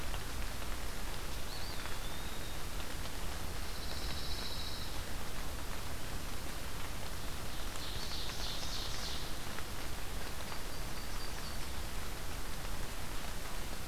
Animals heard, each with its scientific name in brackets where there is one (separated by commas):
Ovenbird (Seiurus aurocapilla), Pine Warbler (Setophaga pinus), Eastern Wood-Pewee (Contopus virens), Yellow-rumped Warbler (Setophaga coronata)